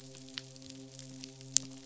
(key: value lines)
label: biophony, midshipman
recorder: SoundTrap 500